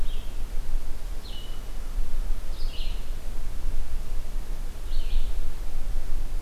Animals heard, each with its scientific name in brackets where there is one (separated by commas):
Red-eyed Vireo (Vireo olivaceus)